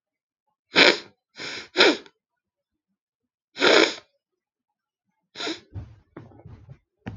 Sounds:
Sniff